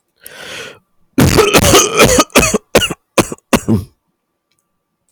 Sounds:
Cough